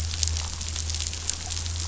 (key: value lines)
label: anthrophony, boat engine
recorder: SoundTrap 500